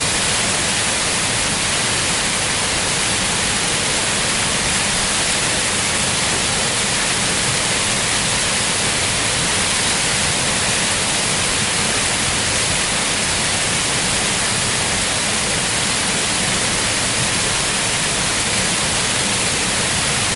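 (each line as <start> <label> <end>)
0.0 Very loud, steady noise of rushing river water, resembling static. 20.4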